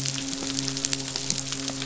{"label": "biophony, midshipman", "recorder": "SoundTrap 500"}
{"label": "biophony", "recorder": "SoundTrap 500"}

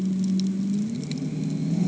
{"label": "anthrophony, boat engine", "recorder": "HydroMoth"}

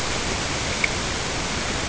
{"label": "ambient", "recorder": "HydroMoth"}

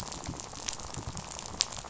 {"label": "biophony, rattle", "recorder": "SoundTrap 500"}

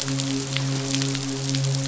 {"label": "biophony, midshipman", "recorder": "SoundTrap 500"}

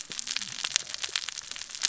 {"label": "biophony, cascading saw", "recorder": "SoundTrap 600 or HydroMoth"}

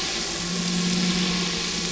{"label": "anthrophony, boat engine", "recorder": "SoundTrap 500"}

